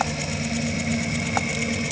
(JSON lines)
{"label": "anthrophony, boat engine", "recorder": "HydroMoth"}